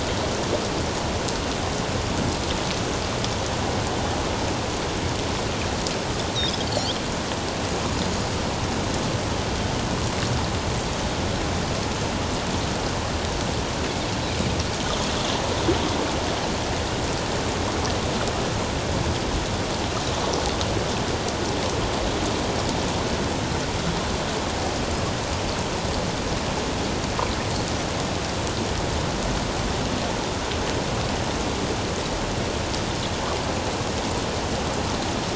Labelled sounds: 6.6	6.9	Pacific white-sided dolphin, 4.1 to 4.8 kHz
8.0	8.2	Pacific white-sided dolphin, 6.6 to 7.1 kHz

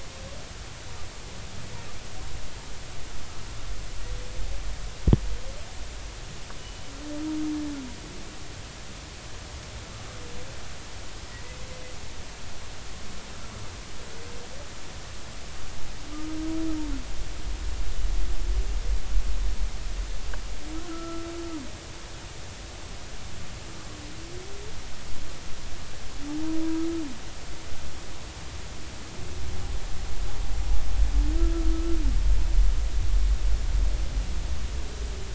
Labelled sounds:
20.8	21.3	humpback whale, 1.2 to 1.5 kHz
26.3	26.6	humpback whale, 0.80 to 0.99 kHz
31.7	32.0	humpback whale, 1.2 to 1.4 kHz

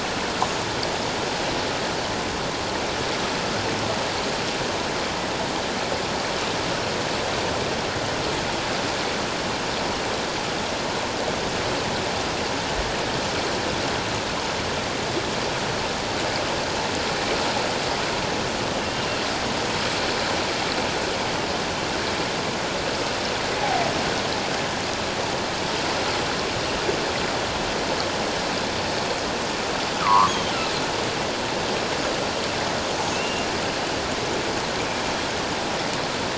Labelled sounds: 30.0	30.6	killer whale, offshore, 0.88 to 3.4 kHz
33.1	33.5	killer whale, offshore, 2.6 to 2.9 kHz

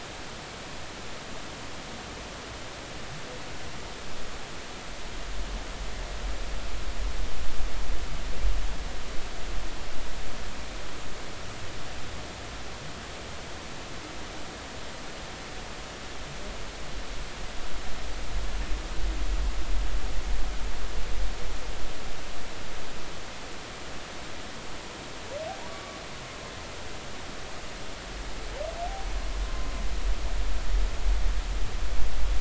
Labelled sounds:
25.7	26.0	humpback whale, 1.1 to 1.2 kHz
29.5	29.7	humpback whale, 0.99 to 1.1 kHz

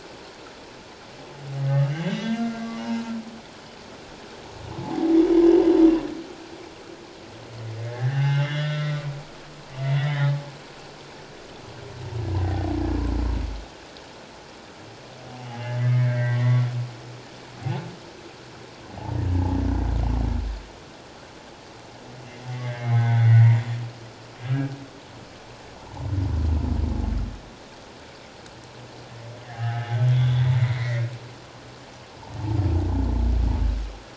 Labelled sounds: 1.8	2.5	humpback whale, 1.9 to 3.1 kHz
4.8	5.1	humpback whale, 0.78 to 0.91 kHz
7.9	9.3	humpback whale, 0.78 to 4.0 kHz
9.8	10.5	humpback whale, 0.78 to 3.9 kHz
12.4	12.7	humpback whale, 1.8 to 2.0 kHz
15.5	16.7	humpback whale, 0.78 to 2.3 kHz
22.5	23.6	humpback whale, 0.78 to 2.3 kHz
29.4	31.1	humpback whale, 0.78 to 3.8 kHz

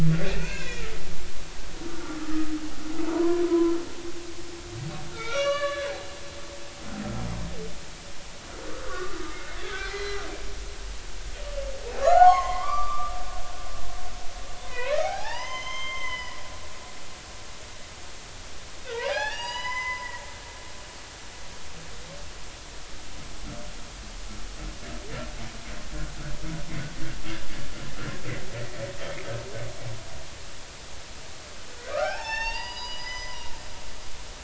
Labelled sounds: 0.4	0.9	humpback whale, 0.90 to 7.0 kHz
1.8	2.2	humpback whale, 1.3 to 1.5 kHz
3.1	3.7	humpback whale, 0.90 to 1.2 kHz
5.1	6.0	humpback whale, 1.1 to 5.8 kHz
8.8	10.3	humpback whale, 1.1 to 4.2 kHz
12.0	13.1	humpback whale, 0.80 to 6.6 kHz
14.6	16.4	humpback whale, 0.80 to 6.4 kHz
18.9	20.1	humpback whale, 0.80 to 7.8 kHz
31.9	33.4	humpback whale, 0.80 to 6.9 kHz

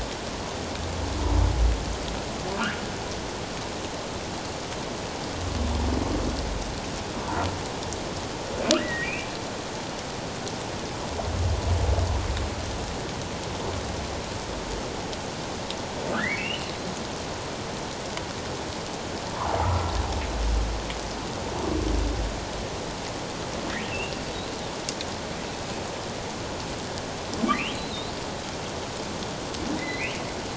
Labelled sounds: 8.8	9.3	humpback whale, 1.6 to 2.9 kHz
16.1	16.7	humpback whale, 1.2 to 3.1 kHz
19.6	19.9	humpback whale, 1.2 to 1.4 kHz
23.9	24.1	humpback whale, 2.6 to 2.9 kHz
27.5	27.8	humpback whale, 2.2 to 3.3 kHz
29.8	30.1	humpback whale, 1.9 to 4.3 kHz

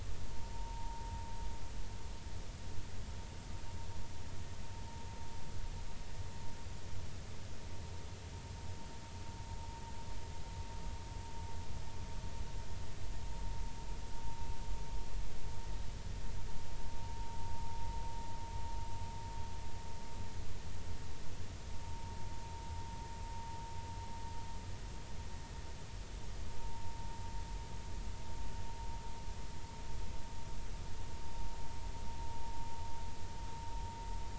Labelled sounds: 0.5	1.0	vessel noise, 0.80 to 1.0 kHz
21.8	22.1	vessel noise, 0.86 to 0.96 kHz
26.6	26.9	vessel noise, 0.86 to 0.96 kHz

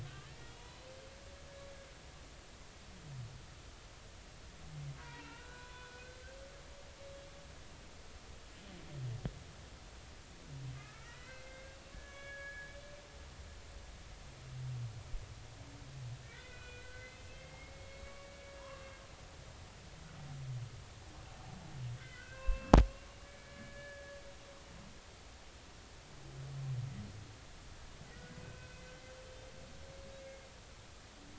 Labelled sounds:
0.3	0.8	humpback whale, 0.90 to 3.5 kHz
5.0	6.2	humpback whale, 0.86 to 3.6 kHz
10.8	12.9	humpback whale, 1.2 to 3.1 kHz
16.2	18.9	humpback whale, 0.93 to 2.8 kHz
22.0	22.7	humpback whale, 0.99 to 3.1 kHz
23.2	24.2	humpback whale, 1.6 to 2.3 kHz
28.4	28.8	humpback whale, 1.4 to 2.6 kHz

